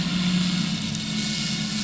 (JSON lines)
{"label": "anthrophony, boat engine", "recorder": "SoundTrap 500"}